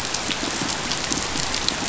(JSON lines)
{"label": "biophony", "recorder": "SoundTrap 500"}